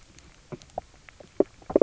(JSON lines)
{"label": "biophony, knock croak", "recorder": "SoundTrap 300"}